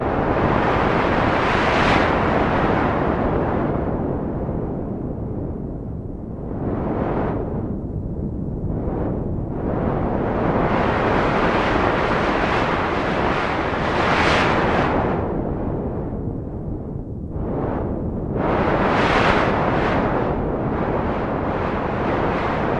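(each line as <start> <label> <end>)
0.0 Very strong wind blowing. 22.8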